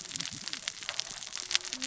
{"label": "biophony, cascading saw", "recorder": "SoundTrap 600 or HydroMoth"}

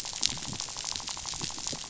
{"label": "biophony, rattle", "recorder": "SoundTrap 500"}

